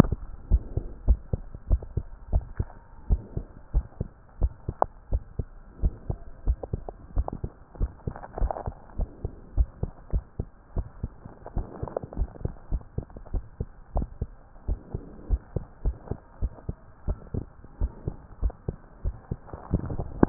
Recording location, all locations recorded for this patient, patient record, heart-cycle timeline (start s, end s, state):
tricuspid valve (TV)
aortic valve (AV)+pulmonary valve (PV)+tricuspid valve (TV)+mitral valve (MV)
#Age: Child
#Sex: Female
#Height: 116.0 cm
#Weight: 21.6 kg
#Pregnancy status: False
#Murmur: Absent
#Murmur locations: nan
#Most audible location: nan
#Systolic murmur timing: nan
#Systolic murmur shape: nan
#Systolic murmur grading: nan
#Systolic murmur pitch: nan
#Systolic murmur quality: nan
#Diastolic murmur timing: nan
#Diastolic murmur shape: nan
#Diastolic murmur grading: nan
#Diastolic murmur pitch: nan
#Diastolic murmur quality: nan
#Outcome: Abnormal
#Campaign: 2015 screening campaign
0.00	0.39	unannotated
0.39	0.44	diastole
0.44	0.62	S1
0.62	0.74	systole
0.74	0.84	S2
0.84	1.04	diastole
1.04	1.22	S1
1.22	1.32	systole
1.32	1.44	S2
1.44	1.68	diastole
1.68	1.82	S1
1.82	1.94	systole
1.94	2.08	S2
2.08	2.30	diastole
2.30	2.46	S1
2.46	2.58	systole
2.58	2.72	S2
2.72	3.06	diastole
3.06	3.22	S1
3.22	3.34	systole
3.34	3.46	S2
3.46	3.72	diastole
3.72	3.86	S1
3.86	4.00	systole
4.00	4.10	S2
4.10	4.38	diastole
4.38	4.52	S1
4.52	4.66	systole
4.66	4.76	S2
4.76	5.10	diastole
5.10	5.24	S1
5.24	5.38	systole
5.38	5.48	S2
5.48	5.80	diastole
5.80	5.94	S1
5.94	6.08	systole
6.08	6.20	S2
6.20	6.46	diastole
6.46	6.58	S1
6.58	6.72	systole
6.72	6.84	S2
6.84	7.14	diastole
7.14	7.28	S1
7.28	7.42	systole
7.42	7.52	S2
7.52	7.78	diastole
7.78	7.92	S1
7.92	8.06	systole
8.06	8.14	S2
8.14	8.38	diastole
8.38	8.52	S1
8.52	8.65	systole
8.65	8.76	S2
8.76	8.96	diastole
8.96	9.10	S1
9.10	9.22	systole
9.22	9.32	S2
9.32	9.56	diastole
9.56	9.70	S1
9.70	9.82	systole
9.82	9.92	S2
9.92	10.12	diastole
10.12	10.24	S1
10.24	10.40	systole
10.40	10.48	S2
10.48	10.76	diastole
10.76	10.88	S1
10.88	11.02	systole
11.02	11.18	S2
11.18	11.52	diastole
11.52	11.66	S1
11.66	11.80	systole
11.80	11.90	S2
11.90	12.16	diastole
12.16	12.30	S1
12.30	12.42	systole
12.42	12.52	S2
12.52	12.70	diastole
12.70	12.83	S1
12.83	12.96	systole
12.96	13.06	S2
13.06	13.31	diastole
13.31	13.44	S1
13.44	13.58	systole
13.58	13.68	S2
13.68	13.94	diastole
13.94	14.10	S1
14.10	14.20	systole
14.20	14.32	S2
14.32	14.66	diastole
14.66	14.80	S1
14.80	14.92	systole
14.92	15.02	S2
15.02	15.30	diastole
15.30	15.40	S1
15.40	15.52	systole
15.52	15.64	S2
15.64	15.86	diastole
15.86	15.98	S1
15.98	16.10	systole
16.10	16.20	S2
16.20	16.42	diastole
16.42	16.52	S1
16.52	16.66	systole
16.66	16.76	S2
16.76	17.06	diastole
17.06	17.18	S1
17.18	17.32	systole
17.32	17.46	S2
17.46	17.78	diastole
17.78	17.92	S1
17.92	18.04	systole
18.04	18.14	S2
18.14	18.42	diastole
18.42	18.52	S1
18.52	18.66	systole
18.66	18.78	S2
18.78	19.04	diastole
19.04	19.16	S1
19.16	19.30	systole
19.30	19.38	S2
19.38	19.72	diastole
19.72	20.29	unannotated